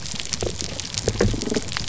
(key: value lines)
label: biophony
recorder: SoundTrap 300